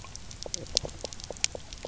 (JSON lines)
{"label": "biophony, knock croak", "recorder": "SoundTrap 300"}